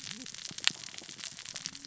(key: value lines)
label: biophony, cascading saw
recorder: SoundTrap 600 or HydroMoth